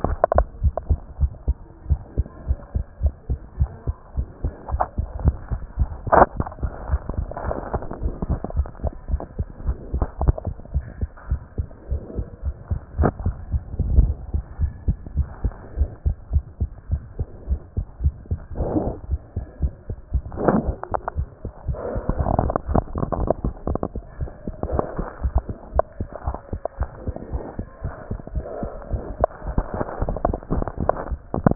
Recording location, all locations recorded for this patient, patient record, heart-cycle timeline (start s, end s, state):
tricuspid valve (TV)
aortic valve (AV)+pulmonary valve (PV)+tricuspid valve (TV)+mitral valve (MV)
#Age: Child
#Sex: Male
#Height: 98.0 cm
#Weight: 14.0 kg
#Pregnancy status: False
#Murmur: Absent
#Murmur locations: nan
#Most audible location: nan
#Systolic murmur timing: nan
#Systolic murmur shape: nan
#Systolic murmur grading: nan
#Systolic murmur pitch: nan
#Systolic murmur quality: nan
#Diastolic murmur timing: nan
#Diastolic murmur shape: nan
#Diastolic murmur grading: nan
#Diastolic murmur pitch: nan
#Diastolic murmur quality: nan
#Outcome: Normal
#Campaign: 2015 screening campaign
0.00	14.59	unannotated
14.59	14.74	S1
14.74	14.86	systole
14.86	14.98	S2
14.98	15.14	diastole
15.14	15.28	S1
15.28	15.42	systole
15.42	15.56	S2
15.56	15.76	diastole
15.76	15.90	S1
15.90	16.02	systole
16.02	16.16	S2
16.16	16.32	diastole
16.32	16.46	S1
16.46	16.62	systole
16.62	16.72	S2
16.72	16.90	diastole
16.90	17.04	S1
17.04	17.18	systole
17.18	17.28	S2
17.28	17.48	diastole
17.48	17.60	S1
17.60	17.74	systole
17.74	17.86	S2
17.86	18.02	diastole
18.02	18.14	S1
18.14	18.30	systole
18.30	18.40	S2
18.40	18.56	diastole
18.56	31.55	unannotated